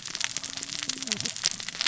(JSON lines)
{"label": "biophony, cascading saw", "recorder": "SoundTrap 600 or HydroMoth"}